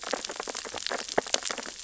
{"label": "biophony, sea urchins (Echinidae)", "recorder": "SoundTrap 600 or HydroMoth"}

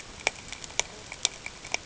{"label": "ambient", "recorder": "HydroMoth"}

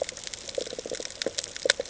{"label": "ambient", "recorder": "HydroMoth"}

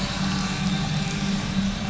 {"label": "anthrophony, boat engine", "recorder": "SoundTrap 500"}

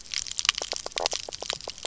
{"label": "biophony, knock croak", "recorder": "SoundTrap 300"}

